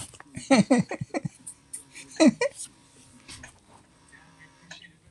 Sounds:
Laughter